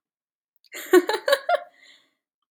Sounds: Laughter